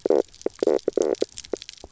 {"label": "biophony, knock croak", "recorder": "SoundTrap 300"}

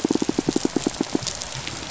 {"label": "biophony, pulse", "recorder": "SoundTrap 500"}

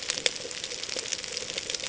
{"label": "ambient", "recorder": "HydroMoth"}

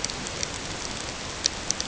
{"label": "ambient", "recorder": "HydroMoth"}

